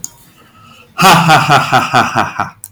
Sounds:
Laughter